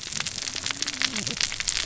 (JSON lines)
{"label": "biophony, cascading saw", "recorder": "SoundTrap 600 or HydroMoth"}